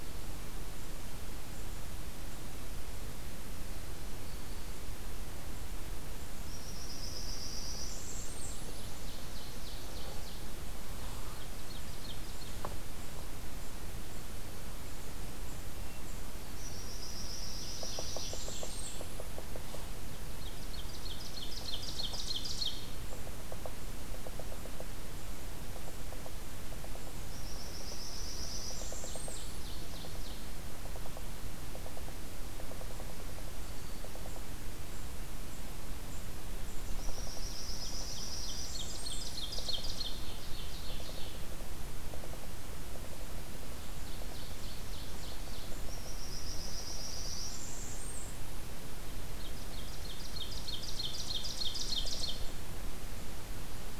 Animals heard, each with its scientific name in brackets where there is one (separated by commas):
Blackburnian Warbler (Setophaga fusca), Yellow-bellied Sapsucker (Sphyrapicus varius), Ovenbird (Seiurus aurocapilla)